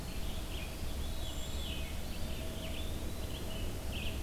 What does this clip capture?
Red-eyed Vireo, Veery, Eastern Wood-Pewee